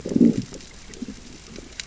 {"label": "biophony, growl", "recorder": "SoundTrap 600 or HydroMoth"}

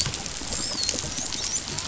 {"label": "biophony, dolphin", "recorder": "SoundTrap 500"}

